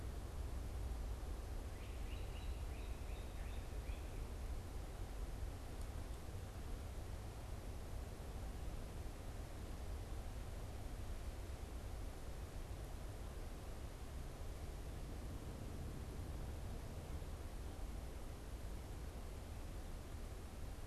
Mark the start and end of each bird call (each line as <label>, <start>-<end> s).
Great Crested Flycatcher (Myiarchus crinitus), 1.4-4.2 s